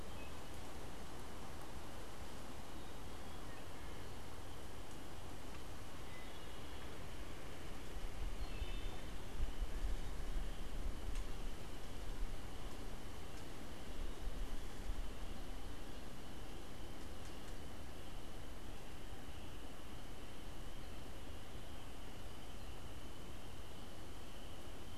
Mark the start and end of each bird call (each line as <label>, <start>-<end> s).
Wood Thrush (Hylocichla mustelina), 0.0-9.4 s